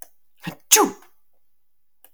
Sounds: Sneeze